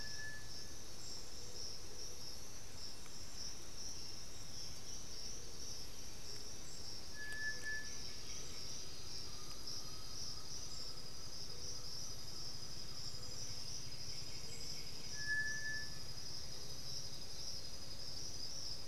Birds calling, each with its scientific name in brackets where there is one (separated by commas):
Great Antshrike (Taraba major), Undulated Tinamou (Crypturellus undulatus), White-winged Becard (Pachyramphus polychopterus), Black-throated Antbird (Myrmophylax atrothorax)